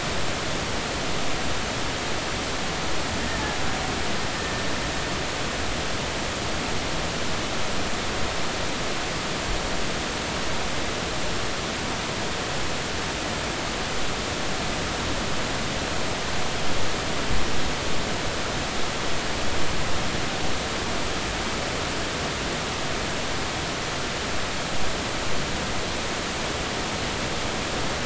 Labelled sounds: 4.3	4.7	killer whale, Bigg's (transient), call T12, 1.8 to 1.9 kHz

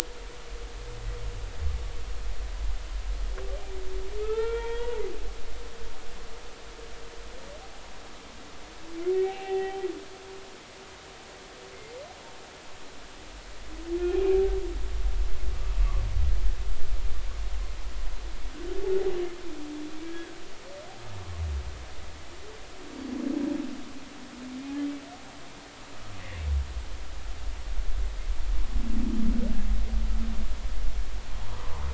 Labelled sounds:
4.2	5.0	humpback whale, 0.83 to 3.3 kHz
9.1	9.9	humpback whale, 0.80 to 3.2 kHz
14.2	14.4	humpback whale, 2.3 to 2.6 kHz
20.0	20.4	humpback whale, 1.5 to 1.7 kHz
22.9	23.2	humpback whale, 4.4 to 4.6 kHz
31.4	31.7	humpback whale, 0.80 to 1.3 kHz

